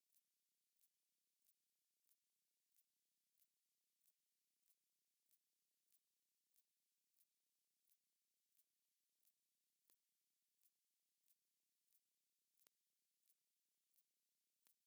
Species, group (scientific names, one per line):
Ctenodecticus major
Orthoptera